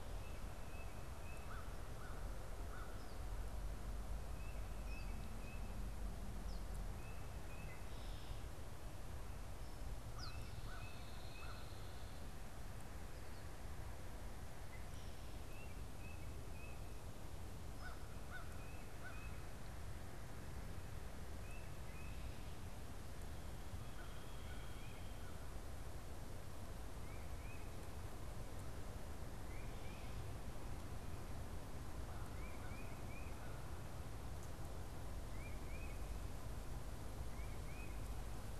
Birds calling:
American Crow (Corvus brachyrhynchos)
unidentified bird
Tufted Titmouse (Baeolophus bicolor)

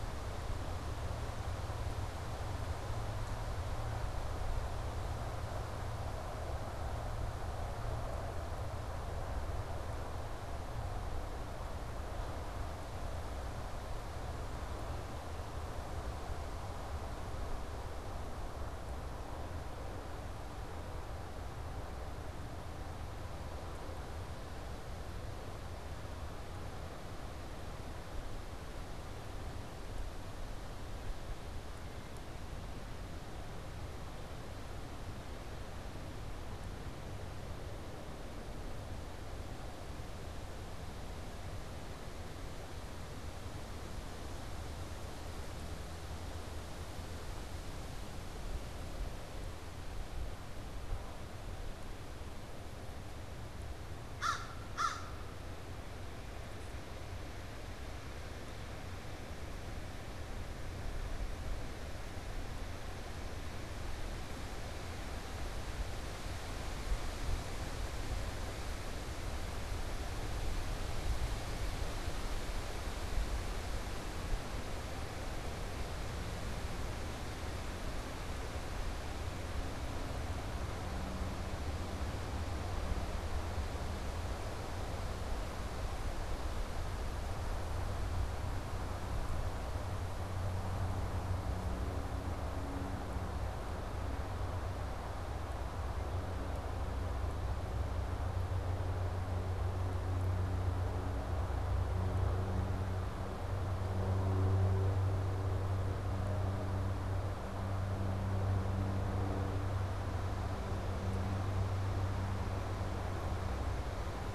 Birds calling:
American Crow (Corvus brachyrhynchos)

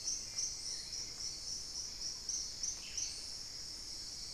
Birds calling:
Thrush-like Wren (Campylorhynchus turdinus)
unidentified bird

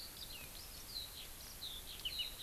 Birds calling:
Eurasian Skylark (Alauda arvensis)

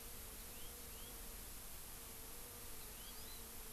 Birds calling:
Hawaii Amakihi (Chlorodrepanis virens)
House Finch (Haemorhous mexicanus)

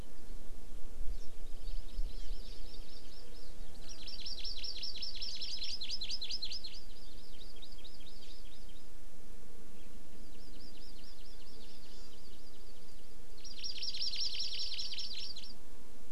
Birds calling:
Hawaii Amakihi (Chlorodrepanis virens)

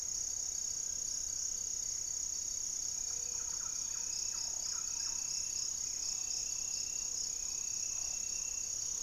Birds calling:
Gray-fronted Dove (Leptotila rufaxilla)
Thrush-like Wren (Campylorhynchus turdinus)
Black-tailed Trogon (Trogon melanurus)
unidentified bird

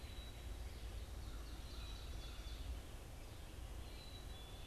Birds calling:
Red-eyed Vireo (Vireo olivaceus)
Black-capped Chickadee (Poecile atricapillus)

